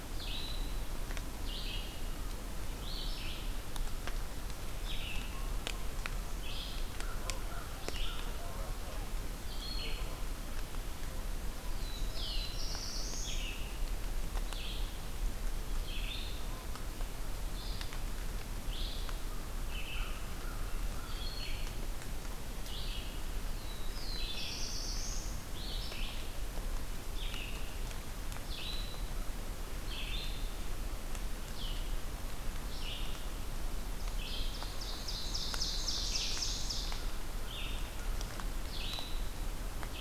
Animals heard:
Red-eyed Vireo (Vireo olivaceus)
American Crow (Corvus brachyrhynchos)
Ovenbird (Seiurus aurocapilla)
Black-throated Blue Warbler (Setophaga caerulescens)

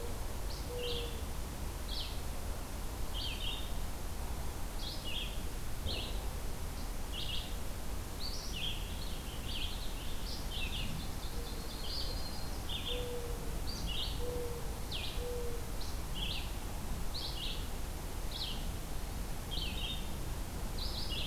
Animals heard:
Ovenbird (Seiurus aurocapilla)
Purple Finch (Haemorhous purpureus)
Red-eyed Vireo (Vireo olivaceus)
Mourning Dove (Zenaida macroura)
Yellow-rumped Warbler (Setophaga coronata)

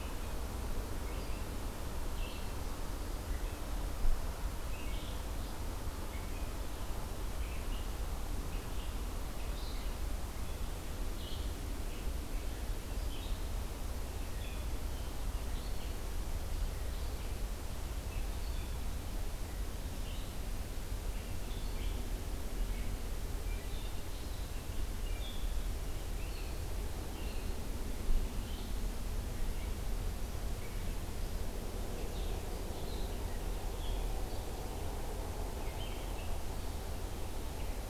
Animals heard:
Red-eyed Vireo (Vireo olivaceus)

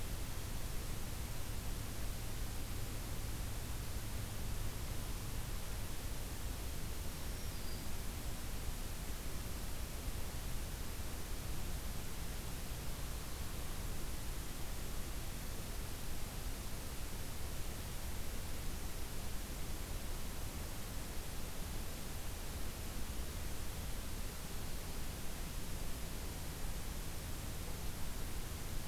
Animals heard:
Black-throated Green Warbler (Setophaga virens)

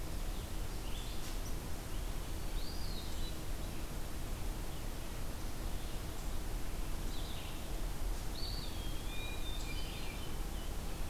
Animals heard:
Red-eyed Vireo (Vireo olivaceus)
Hermit Thrush (Catharus guttatus)
Eastern Wood-Pewee (Contopus virens)

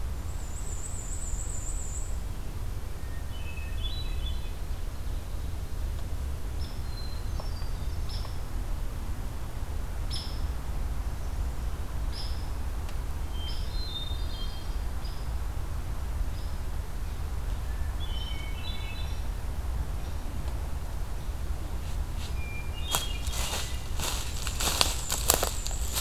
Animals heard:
Hermit Thrush (Catharus guttatus)
Hairy Woodpecker (Dryobates villosus)
Black-and-white Warbler (Mniotilta varia)

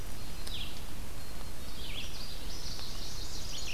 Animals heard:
Red-eyed Vireo (Vireo olivaceus)
Common Yellowthroat (Geothlypis trichas)
Black-capped Chickadee (Poecile atricapillus)
Chestnut-sided Warbler (Setophaga pensylvanica)

